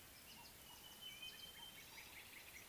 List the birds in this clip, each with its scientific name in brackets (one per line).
Sulphur-breasted Bushshrike (Telophorus sulfureopectus)